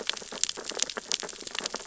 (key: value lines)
label: biophony, sea urchins (Echinidae)
recorder: SoundTrap 600 or HydroMoth